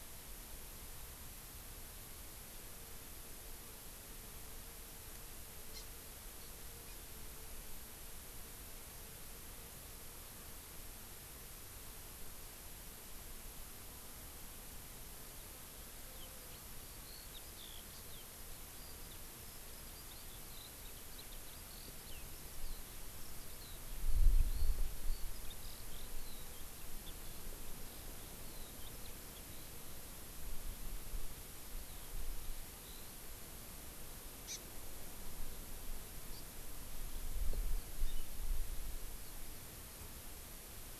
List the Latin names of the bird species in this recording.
Chlorodrepanis virens, Alauda arvensis